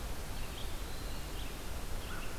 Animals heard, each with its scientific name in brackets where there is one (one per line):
Red-eyed Vireo (Vireo olivaceus)